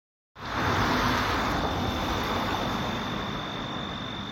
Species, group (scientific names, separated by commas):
Oecanthus dulcisonans, Orthoptera